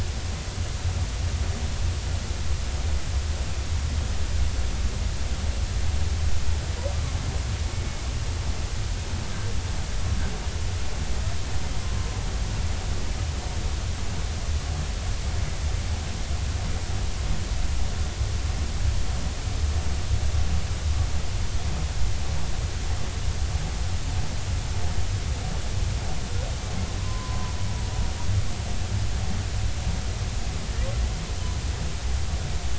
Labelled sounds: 27.0	27.5	humpback whale, 0.93 to 1.1 kHz

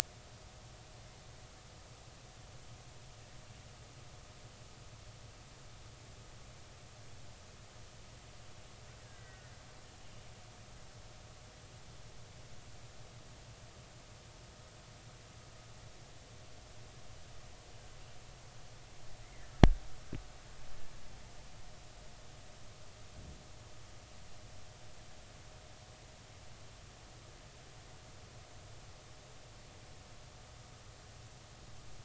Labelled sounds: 9.0	9.5	killer whale, Bigg's (transient), 1.4 to 2.0 kHz
19.2	19.5	killer whale, Bigg's (transient), 1.9 to 2.2 kHz

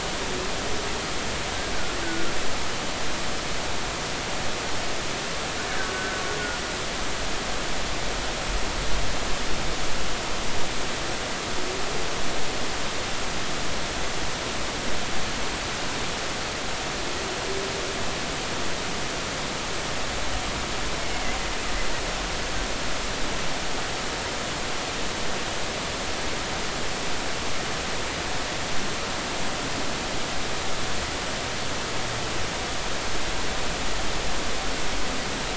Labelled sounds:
2.0	2.3	killer whale, Bigg's (transient), 1.3 to 1.6 kHz
5.8	6.2	killer whale, Bigg's (transient), 1.4 to 1.7 kHz

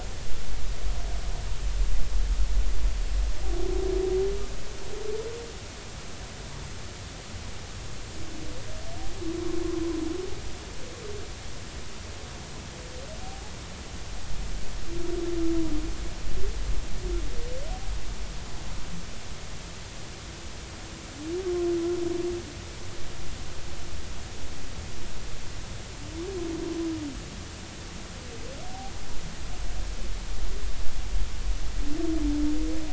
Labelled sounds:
13.2	13.5	humpback whale, 0.80 to 0.90 kHz

